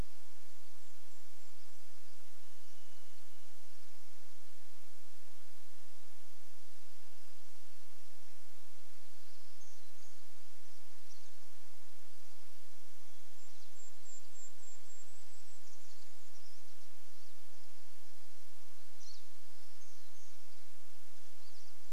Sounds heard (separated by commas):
Pine Siskin call, Varied Thrush song, warbler song, Golden-crowned Kinglet song, unidentified sound